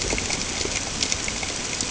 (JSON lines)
{"label": "ambient", "recorder": "HydroMoth"}